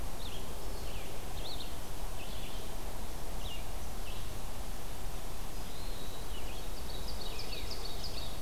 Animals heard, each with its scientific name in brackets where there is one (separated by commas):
Red-eyed Vireo (Vireo olivaceus), Ovenbird (Seiurus aurocapilla)